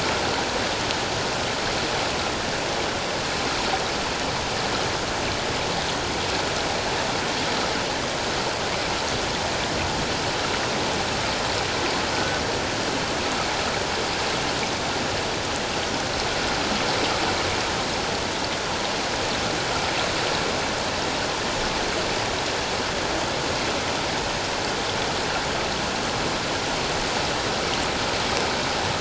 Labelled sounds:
12.1	12.4	humpback whale, 1.4 to 1.6 kHz

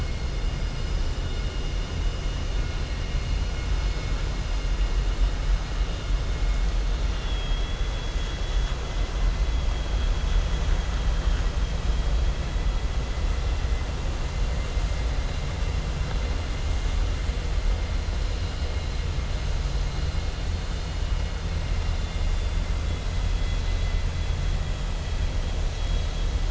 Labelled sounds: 7.0	7.8	vessel noise, 1.9 to 4.3 kHz
21.7	22.6	vessel noise, 2.0 to 4.3 kHz

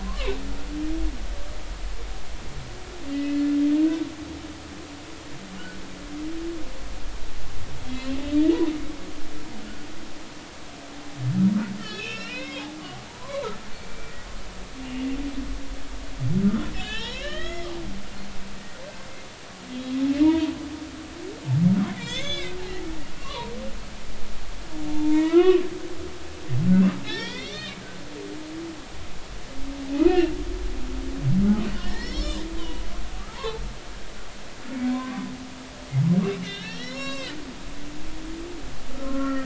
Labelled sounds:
0.0	0.4	humpback whale, 0.93 to 2.8 kHz
3.1	3.5	humpback whale, 2.0 to 2.9 kHz
7.9	8.6	humpback whale, 1.7 to 2.9 kHz
11.8	13.4	humpback whale, 0.80 to 6.8 kHz
13.7	14.1	humpback whale, 2.3 to 2.4 kHz
16.7	17.7	humpback whale, 0.83 to 5.6 kHz
20.2	20.5	humpback whale, 0.90 to 3.3 kHz
21.9	22.6	humpback whale, 1.4 to 6.5 kHz
23.1	23.5	humpback whale, 0.90 to 3.0 kHz
24.9	25.6	humpback whale, 0.83 to 3.1 kHz
27.0	27.8	humpback whale, 0.86 to 5.6 kHz
29.9	30.3	humpback whale, 1.2 to 2.9 kHz
31.7	32.8	humpback whale, 0.90 to 7.3 kHz
33.3	33.6	humpback whale, 0.83 to 1.2 kHz
34.7	35.2	humpback whale, 0.96 to 2.3 kHz
36.4	37.3	humpback whale, 1.0 to 6.7 kHz
38.9	39.4	humpback whale, 0.99 to 1.5 kHz

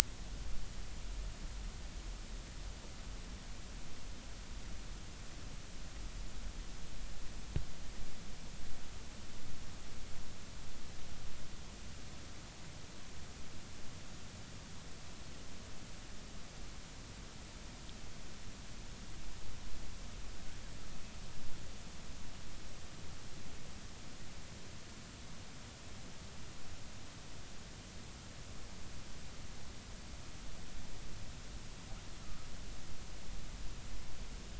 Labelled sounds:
32.2	32.5	killer whale, northern resident, 1.2 to 1.5 kHz

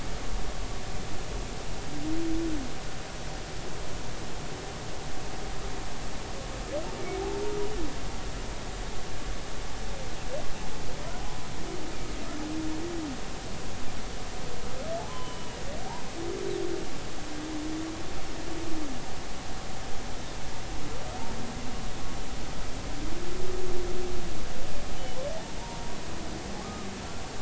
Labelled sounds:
15.1	15.6	humpback whale, 0.96 to 3.1 kHz
25.6	25.9	humpback whale, 0.83 to 0.99 kHz
26.6	26.9	humpback whale, 1.1 to 1.3 kHz

